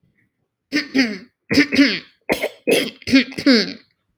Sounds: Throat clearing